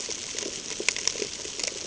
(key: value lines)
label: ambient
recorder: HydroMoth